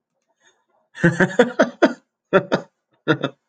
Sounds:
Laughter